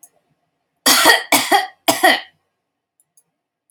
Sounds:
Cough